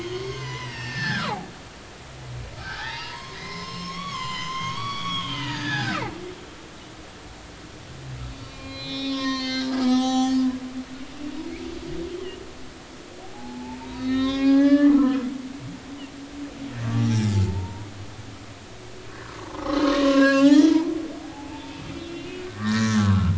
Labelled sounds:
0.0	1.5	humpback whale, 0.80 to 6.5 kHz
2.6	6.0	humpback whale, 0.80 to 7.9 kHz
8.3	10.4	humpback whale, 0.80 to 6.6 kHz
13.3	15.2	humpback whale, 0.80 to 5.7 kHz
17.0	17.9	humpback whale, 0.86 to 5.8 kHz
19.1	23.3	humpback whale, 0.80 to 5.9 kHz

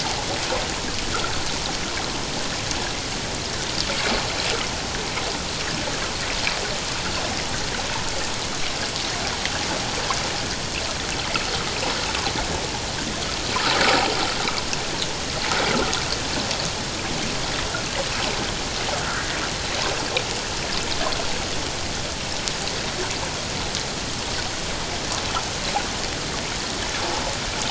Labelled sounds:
19.0	19.3	water noise, 1.2 to 1.7 kHz

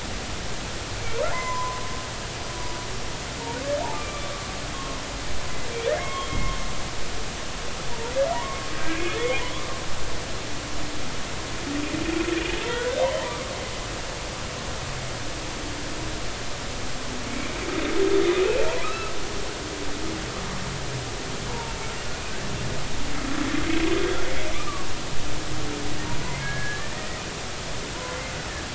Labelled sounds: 1.3	1.8	humpback whale, 0.86 to 2.1 kHz
3.9	5.0	humpback whale, 0.99 to 2.4 kHz
5.9	7.3	humpback whale, 1.0 to 3.3 kHz
8.3	9.4	humpback whale, 0.90 to 2.6 kHz
12.6	13.0	humpback whale, 0.90 to 3.4 kHz
18.8	19.1	humpback whale, 1.2 to 1.4 kHz
21.5	21.7	humpback whale, 0.86 to 1.0 kHz
26.2	27.2	humpback whale, 1.6 to 2.3 kHz

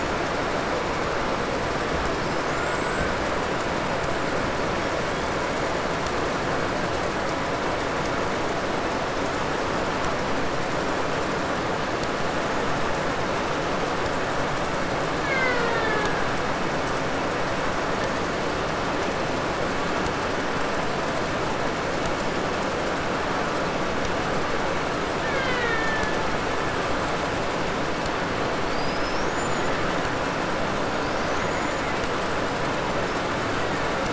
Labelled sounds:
2.3	3.2	killer whale, Bigg's (transient), 0.71 to 8.0 kHz
15.0	16.5	killer whale, Bigg's (transient), 0.16 to 6.2 kHz
24.9	27.1	killer whale, Bigg's (transient), 0.40 to 5.9 kHz
28.5	29.9	killer whale, 4.1 to 8.0 kHz
31.0	32.3	killer whale, 1.6 to 7.3 kHz
33.1	34.1	killer whale, Bigg's (transient), 1.1 to 2.7 kHz

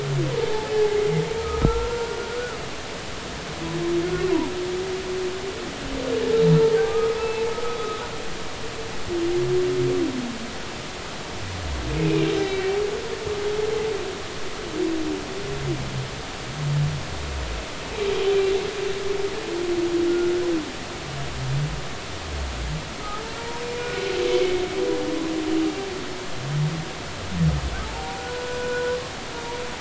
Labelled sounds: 0.4	1.0	humpback whale, 0.80 to 0.93 kHz
1.4	2.6	humpback whale, 1.2 to 1.5 kHz
6.8	7.5	humpback whale, 0.80 to 2.7 kHz
7.8	8.0	humpback whale, 1.2 to 1.3 kHz
11.9	12.8	humpback whale, 2.2 to 4.0 kHz
20.1	20.3	humpback whale, 1.3 to 1.5 kHz
23.8	24.2	humpback whale, 1.4 to 1.5 kHz
27.8	28.9	humpback whale, 0.80 to 1.5 kHz

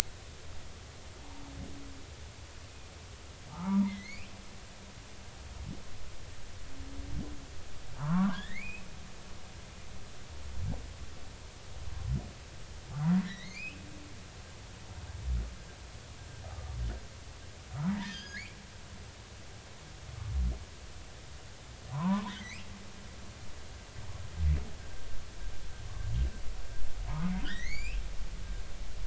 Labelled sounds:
3.5	4.3	humpback whale, 0.80 to 2.9 kHz
7.9	8.9	humpback whale, 0.83 to 3.8 kHz
13.2	13.8	humpback whale, 1.7 to 4.4 kHz
16.5	16.8	humpback whale, 1.1 to 1.3 kHz
17.8	18.6	humpback whale, 0.90 to 5.1 kHz
21.9	22.7	humpback whale, 0.86 to 2.9 kHz
27.4	28.0	humpback whale, 1.4 to 7.3 kHz

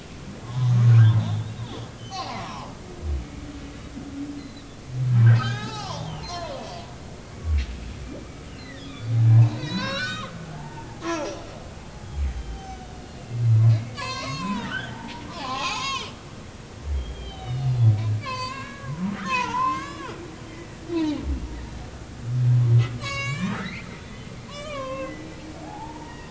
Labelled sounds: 0.4	2.7	humpback whale, 0.80 to 6.2 kHz
4.4	4.7	humpback whale, 3.8 to 4.3 kHz
5.3	6.5	humpback whale, 0.80 to 5.8 kHz
7.3	7.6	humpback whale, 1.1 to 1.2 kHz
8.2	11.4	humpback whale, 0.80 to 5.9 kHz
12.2	13.4	humpback whale, 2.6 to 6.5 kHz
13.7	16.1	humpback whale, 0.80 to 6.8 kHz
16.9	17.9	humpback whale, 2.8 to 4.0 kHz
18.2	20.2	humpback whale, 0.80 to 7.2 kHz
20.9	21.2	humpback whale, 0.80 to 1.1 kHz
23.0	26.2	humpback whale, 0.80 to 7.9 kHz

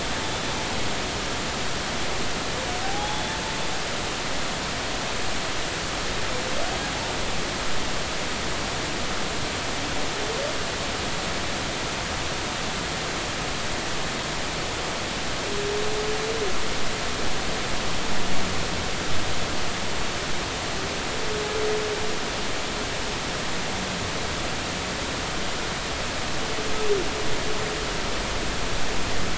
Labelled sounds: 0.2	0.5	humpback whale, 3.4 to 3.6 kHz
2.8	3.4	humpback whale, 0.80 to 3.6 kHz

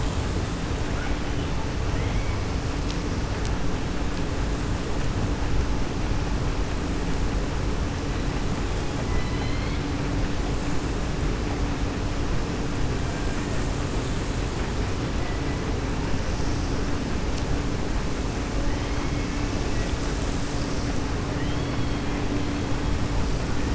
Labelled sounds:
1.9	2.3	killer whale, 1.9 to 3.1 kHz
9.0	9.8	killer whale, 1.1 to 4.4 kHz
18.7	19.5	killer whale, 1.7 to 3.1 kHz
21.3	22.0	killer whale, 1.9 to 3.4 kHz

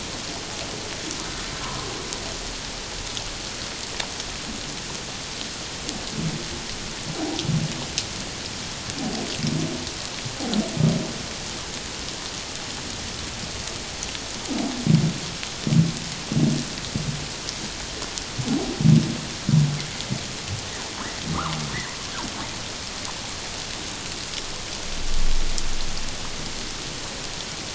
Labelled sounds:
1.6	1.9	humpback whale, 0.94 to 1.2 kHz
7.1	7.4	humpback whale, 0.78 to 0.97 kHz

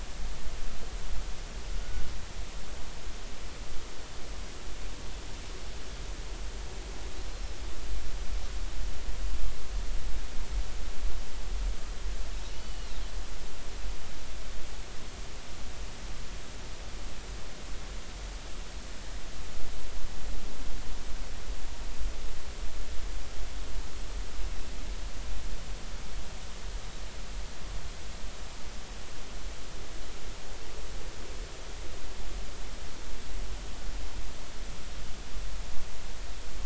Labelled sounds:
7.3	7.5	Pacific white-sided dolphin, 4.0 to 4.3 kHz
12.5	13.0	Pacific white-sided dolphin, 2.8 to 4.4 kHz

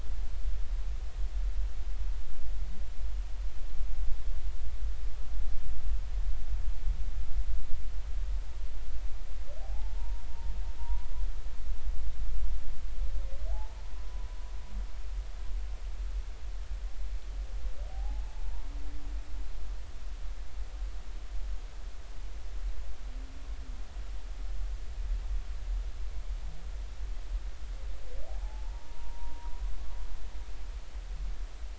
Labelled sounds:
9.6	11.1	humpback whale, 0.80 to 1.0 kHz
13.5	14.3	humpback whale, 0.80 to 1.0 kHz
17.9	18.2	humpback whale, 0.80 to 0.90 kHz
28.4	29.6	humpback whale, 0.80 to 1.1 kHz

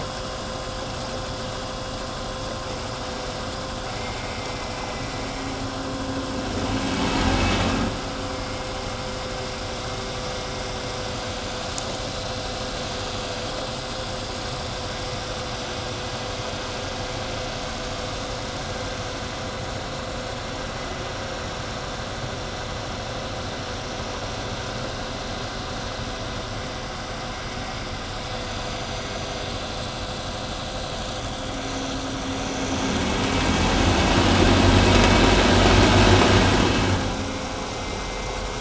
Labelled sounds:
3.8	5.6	vessel noise, 1.8 to 4.9 kHz
6.7	7.9	vessel noise, 0 to 8.0 kHz

